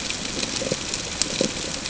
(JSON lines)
{"label": "ambient", "recorder": "HydroMoth"}